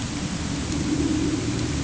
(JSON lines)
{"label": "anthrophony, boat engine", "recorder": "HydroMoth"}